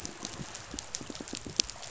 {"label": "biophony, pulse", "recorder": "SoundTrap 500"}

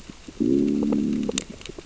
{"label": "biophony, growl", "recorder": "SoundTrap 600 or HydroMoth"}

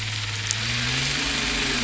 {"label": "anthrophony, boat engine", "recorder": "SoundTrap 500"}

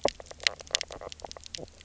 {"label": "biophony, knock croak", "recorder": "SoundTrap 300"}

